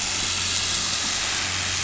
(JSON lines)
{"label": "anthrophony, boat engine", "recorder": "SoundTrap 500"}